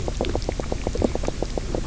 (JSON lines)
{"label": "biophony, knock croak", "recorder": "SoundTrap 300"}